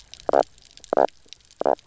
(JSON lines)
{"label": "biophony, knock croak", "recorder": "SoundTrap 300"}